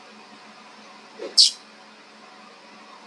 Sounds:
Sigh